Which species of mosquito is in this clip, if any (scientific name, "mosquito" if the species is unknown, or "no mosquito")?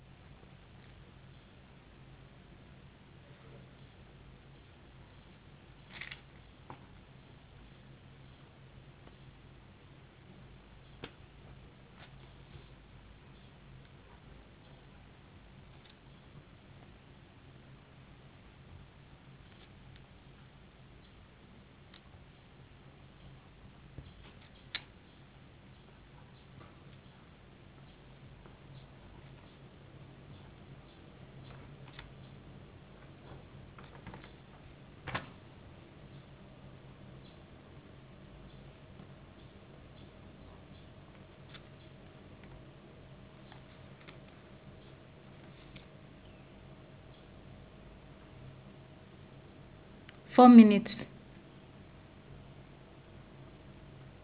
no mosquito